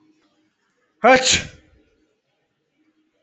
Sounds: Sneeze